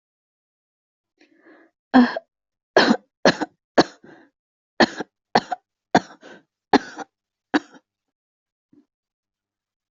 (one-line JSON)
{"expert_labels": [{"quality": "good", "cough_type": "dry", "dyspnea": true, "wheezing": false, "stridor": false, "choking": false, "congestion": false, "nothing": false, "diagnosis": "lower respiratory tract infection", "severity": "mild"}], "age": 30, "gender": "female", "respiratory_condition": false, "fever_muscle_pain": true, "status": "symptomatic"}